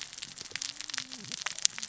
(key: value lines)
label: biophony, cascading saw
recorder: SoundTrap 600 or HydroMoth